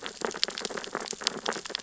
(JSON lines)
{"label": "biophony, sea urchins (Echinidae)", "recorder": "SoundTrap 600 or HydroMoth"}